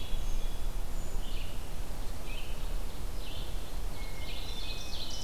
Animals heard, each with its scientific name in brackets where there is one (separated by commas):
Ovenbird (Seiurus aurocapilla), Hermit Thrush (Catharus guttatus), Red-eyed Vireo (Vireo olivaceus)